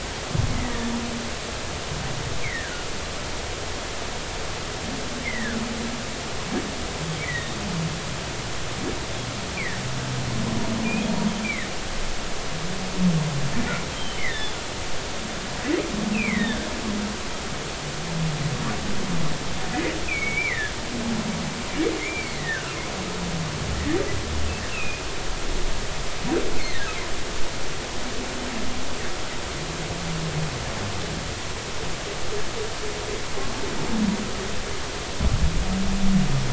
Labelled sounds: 0.6	0.9	humpback whale, 1.7 to 2.1 kHz
2.4	2.9	humpback whale, 1.4 to 2.4 kHz
5.2	5.6	humpback whale, 1.4 to 2.4 kHz
7.2	7.6	humpback whale, 1.7 to 3.9 kHz
9.6	9.8	humpback whale, 1.7 to 2.5 kHz
10.8	11.7	humpback whale, 1.7 to 2.6 kHz
13.9	14.6	humpback whale, 1.6 to 3.8 kHz
16.1	16.6	humpback whale, 1.7 to 3.9 kHz
20.0	20.7	humpback whale, 1.6 to 2.7 kHz
22.0	22.7	humpback whale, 1.3 to 2.4 kHz
24.7	25.0	humpback whale, 2.4 to 2.8 kHz
26.6	26.9	humpback whale, 1.8 to 2.3 kHz

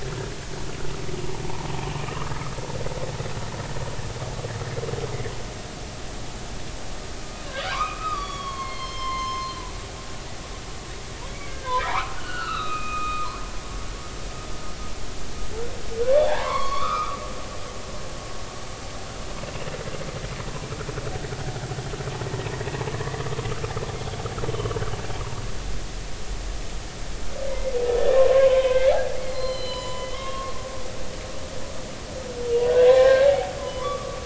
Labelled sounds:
2.1	2.5	humpback whale, 0.96 to 1.4 kHz
7.7	9.7	humpback whale, 0.93 to 5.9 kHz
11.3	13.4	humpback whale, 0.80 to 4.5 kHz
16.1	17.2	humpback whale, 0.80 to 4.5 kHz
27.9	30.5	humpback whale, 0.93 to 7.1 kHz
32.7	34.2	humpback whale, 0.80 to 2.4 kHz

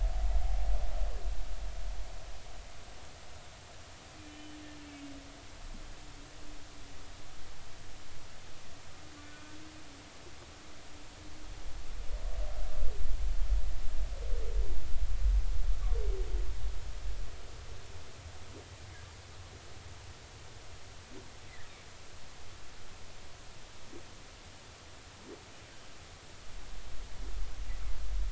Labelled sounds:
4.2	4.6	humpback whale, 2.3 to 3.1 kHz
9.2	9.6	humpback whale, 1.4 to 1.6 kHz

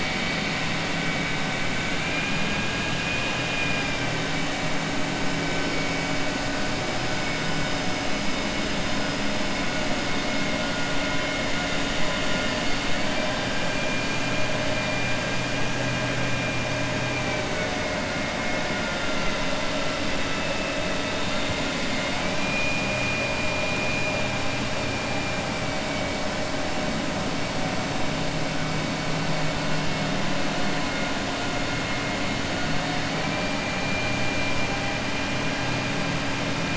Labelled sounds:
1.9	4.1	vessel noise, 1.6 to 3.3 kHz

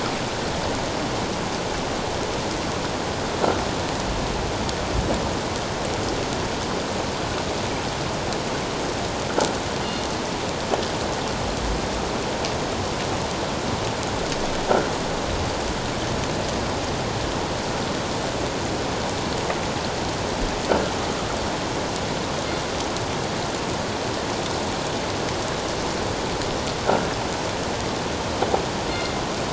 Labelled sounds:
9.8	10.0	killer whale, northern resident, G clan, call N24ii, 4.2 to 4.3 kHz
28.9	29.2	killer whale, northern resident, G clan, call N24ii, 2.1 to 2.2 kHz

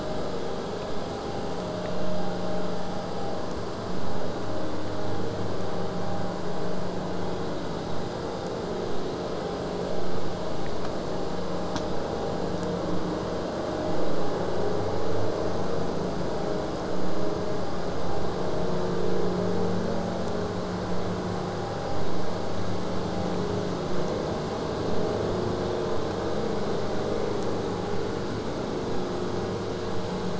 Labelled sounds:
23.9	28.9	vessel noise, 0 to 8.0 kHz

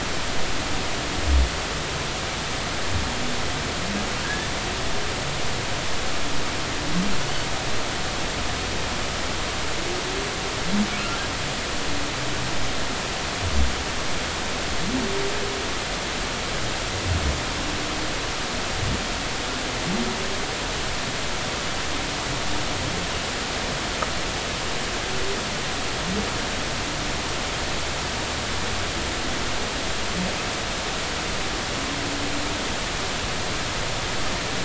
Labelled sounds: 4.2	4.5	humpback whale, 1.6 to 1.8 kHz

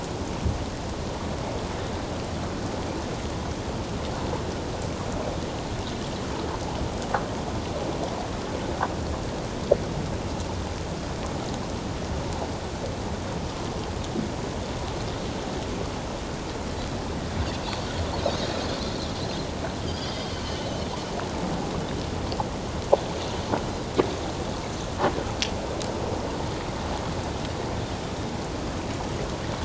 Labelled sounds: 18.2	18.5	Pacific white-sided dolphin, 3.6 to 4.2 kHz
19.8	20.3	Pacific white-sided dolphin, 1.9 to 5.2 kHz

